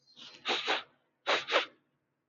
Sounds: Sniff